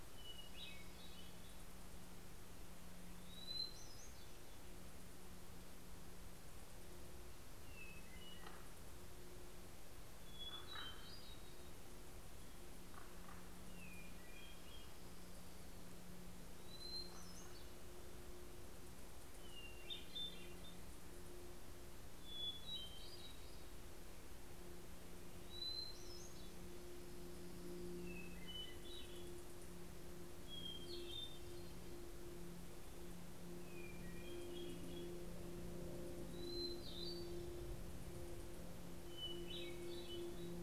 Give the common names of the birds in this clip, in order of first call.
Hermit Thrush, Common Raven